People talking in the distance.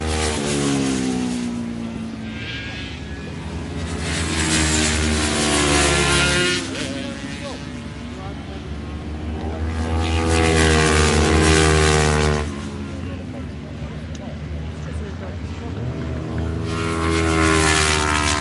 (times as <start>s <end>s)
8.1s 9.8s